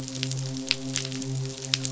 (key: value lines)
label: biophony, midshipman
recorder: SoundTrap 500